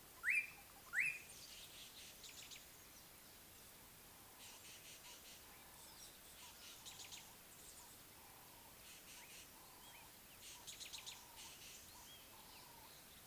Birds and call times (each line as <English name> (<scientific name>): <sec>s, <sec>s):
Rattling Cisticola (Cisticola chiniana): 1.9s, 9.2s